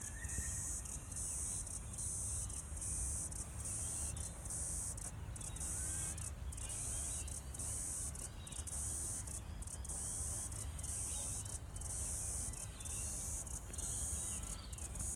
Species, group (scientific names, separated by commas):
Atrapsalta corticina, Cicadidae